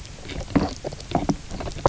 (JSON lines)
{"label": "biophony, knock croak", "recorder": "SoundTrap 300"}